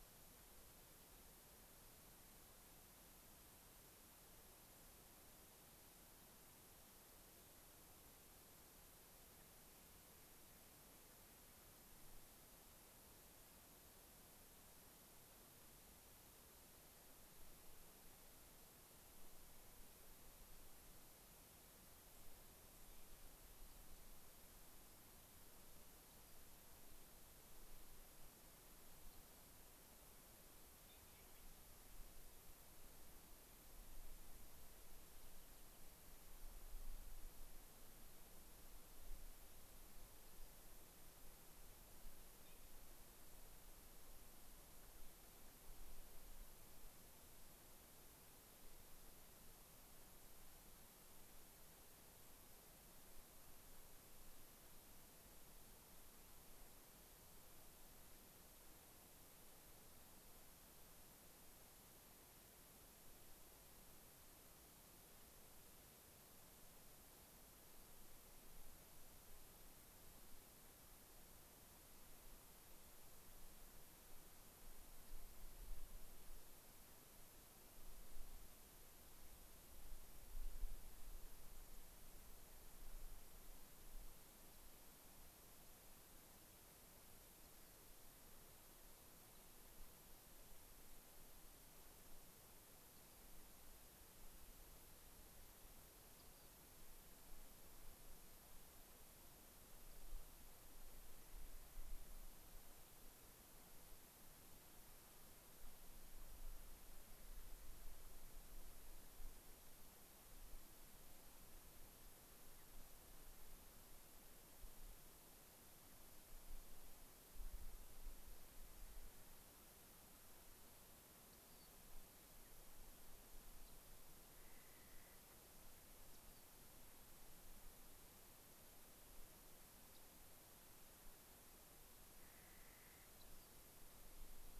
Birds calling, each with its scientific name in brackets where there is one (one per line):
Clark's Nutcracker (Nucifraga columbiana)
Rock Wren (Salpinctes obsoletus)
Mountain Bluebird (Sialia currucoides)
American Pipit (Anthus rubescens)
unidentified bird